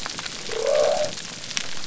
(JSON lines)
{"label": "biophony", "recorder": "SoundTrap 300"}